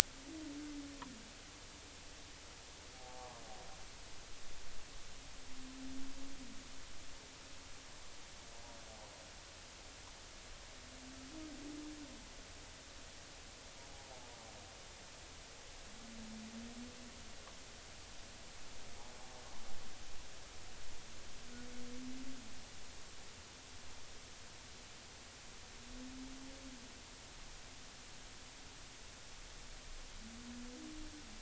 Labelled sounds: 3.0	3.4	humpback whale, 0.80 to 0.93 kHz

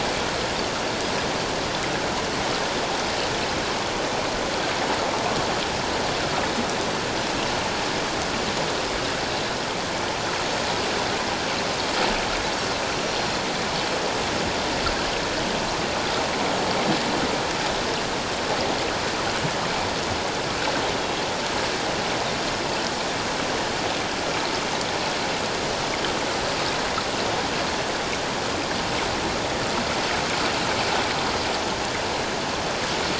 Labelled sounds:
13.0	13.4	Pacific white-sided dolphin, 4.1 to 5.8 kHz

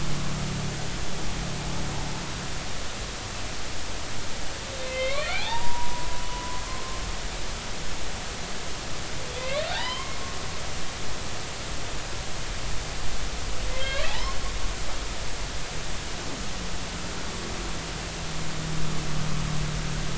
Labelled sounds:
4.8	7.0	humpback whale, 0.80 to 3.8 kHz
9.3	10.2	humpback whale, 0.80 to 4.2 kHz
13.7	14.4	humpback whale, 0.80 to 2.8 kHz

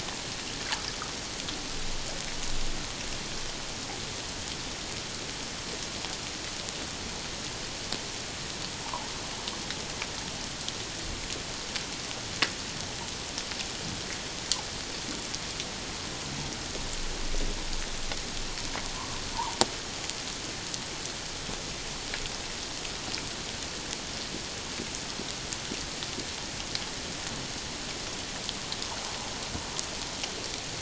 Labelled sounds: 18.9	19.6	humpback whale, 0.84 to 1.2 kHz

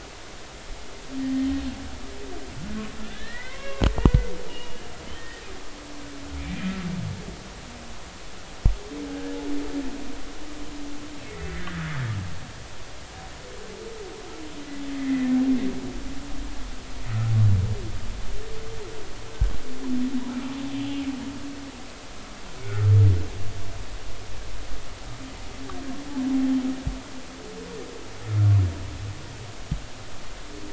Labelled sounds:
1.2	1.5	humpback whale, 1.8 to 1.9 kHz
3.0	4.2	humpback whale, 0.99 to 2.8 kHz
4.5	5.4	humpback whale, 1.7 to 2.9 kHz
6.4	6.8	humpback whale, 2.1 to 2.5 kHz
11.5	12.0	humpback whale, 1.5 to 2.0 kHz
14.9	15.3	humpback whale, 1.9 to 2.1 kHz
17.1	17.3	humpback whale, 1.2 to 1.5 kHz
20.7	21.0	humpback whale, 2.8 to 3.1 kHz

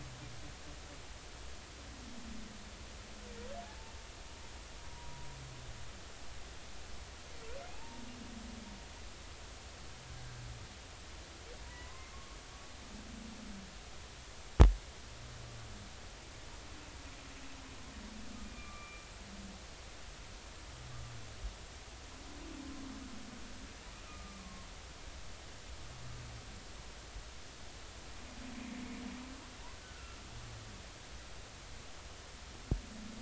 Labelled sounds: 4.9	5.3	humpback whale, 0.93 to 1.0 kHz
7.7	8.0	humpback whale, 0.80 to 0.96 kHz
11.6	12.4	humpback whale, 0.93 to 2.0 kHz
18.4	19.0	humpback whale, 1.1 to 2.5 kHz
24.0	24.7	humpback whale, 1.0 to 1.4 kHz
29.7	30.2	humpback whale, 1.3 to 1.6 kHz

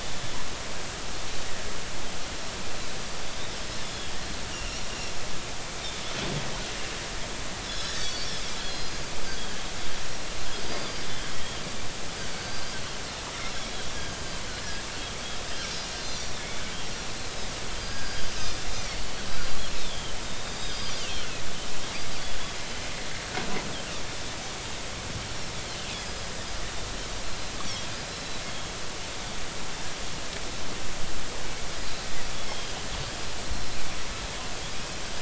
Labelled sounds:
0.0	0.4	Pacific white-sided dolphin, 3.4 to 3.6 kHz
3.8	4.8	Pacific white-sided dolphin, 2.7 to 7.0 kHz
7.7	9.0	Pacific white-sided dolphin, 3.1 to 6.1 kHz
10.6	11.0	Pacific white-sided dolphin, 4.7 to 4.9 kHz
12.3	12.8	Pacific white-sided dolphin, 4.6 to 5.0 kHz
15.8	17.1	Pacific white-sided dolphin, 4.1 to 6.2 kHz
17.8	19.0	Pacific white-sided dolphin, 1.5 to 4.9 kHz
19.3	21.2	Pacific white-sided dolphin, 2.5 to 5.1 kHz
28.1	28.4	Pacific white-sided dolphin, 3.9 to 4.1 kHz
32.5	32.8	Pacific white-sided dolphin, 3.1 to 3.3 kHz

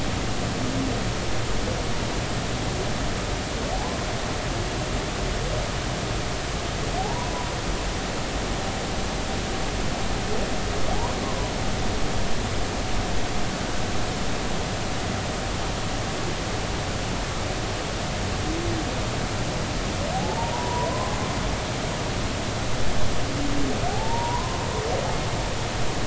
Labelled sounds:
7.0	7.5	humpback whale, 0.80 to 1.1 kHz
11.2	11.5	humpback whale, 0.96 to 1.1 kHz
20.1	20.9	humpback whale, 0.80 to 1.0 kHz
23.9	24.6	humpback whale, 0.80 to 1.1 kHz

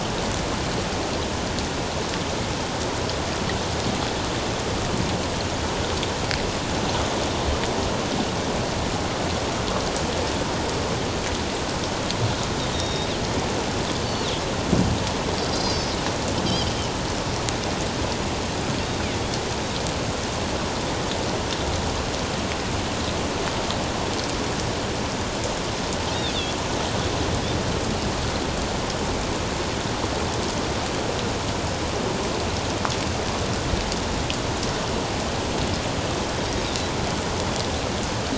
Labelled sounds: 12.7	13.1	Pacific white-sided dolphin, 3.6 to 5.7 kHz
15.5	16.7	Pacific white-sided dolphin, 3.0 to 5.7 kHz

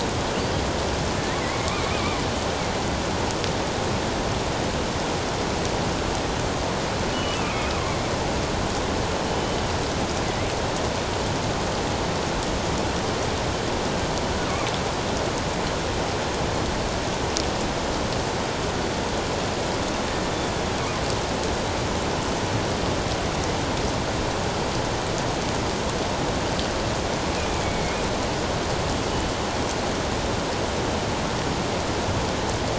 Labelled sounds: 1.4	2.2	killer whale, northern resident, G clan, 1.9 to 2.6 kHz
7.1	7.8	killer whale, northern resident, G clan, 2.1 to 3.0 kHz
9.3	9.6	killer whale, northern resident, G clan, 3.0 to 3.1 kHz
27.6	28.0	killer whale, northern resident, G clan, 2.1 to 2.3 kHz

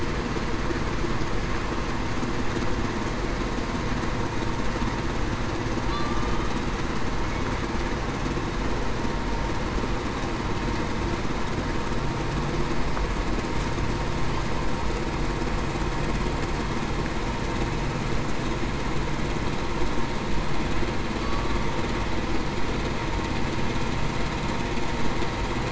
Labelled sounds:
5.9	6.4	killer whale, Bigg's (transient), 1.1 to 1.2 kHz

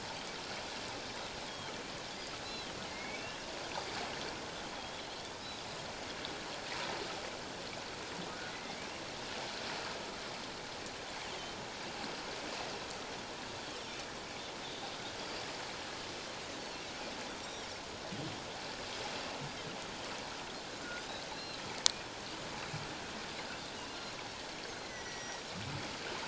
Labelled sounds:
1.5	1.8	Pacific white-sided dolphin, 3.0 to 3.3 kHz
2.4	3.2	Pacific white-sided dolphin, 2.0 to 6.8 kHz
8.5	8.8	Pacific white-sided dolphin, 1.9 to 2.2 kHz
16.6	16.8	Pacific white-sided dolphin, 4.1 to 4.6 kHz
17.4	17.7	Pacific white-sided dolphin, 5.3 to 5.8 kHz
21.3	21.6	Pacific white-sided dolphin, 3.8 to 4.2 kHz
24.8	25.4	Pacific white-sided dolphin, 1.8 to 6.2 kHz

